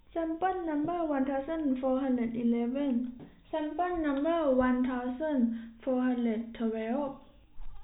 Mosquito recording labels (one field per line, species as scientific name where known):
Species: no mosquito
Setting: cup